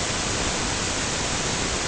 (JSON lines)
{"label": "ambient", "recorder": "HydroMoth"}